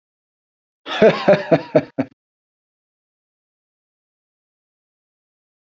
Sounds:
Laughter